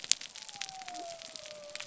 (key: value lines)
label: biophony
recorder: SoundTrap 300